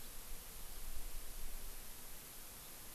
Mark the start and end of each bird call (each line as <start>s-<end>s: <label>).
0.0s-0.1s: House Finch (Haemorhous mexicanus)